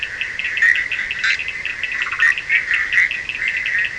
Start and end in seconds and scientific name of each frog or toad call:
0.0	3.9	Boana bischoffi
0.0	3.9	Sphaenorhynchus surdus
1.9	2.4	Boana prasina